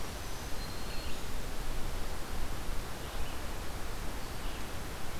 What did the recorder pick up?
Black-throated Green Warbler, Red-eyed Vireo